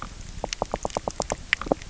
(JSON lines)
{"label": "biophony, knock", "recorder": "SoundTrap 300"}